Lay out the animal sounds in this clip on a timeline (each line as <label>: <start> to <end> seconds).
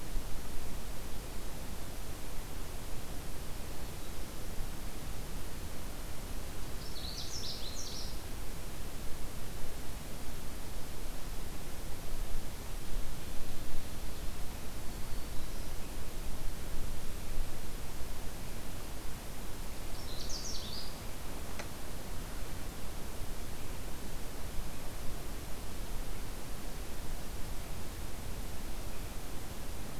Canada Warbler (Cardellina canadensis): 6.6 to 8.3 seconds
Canada Warbler (Cardellina canadensis): 19.8 to 21.2 seconds